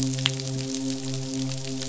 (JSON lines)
{"label": "biophony, midshipman", "recorder": "SoundTrap 500"}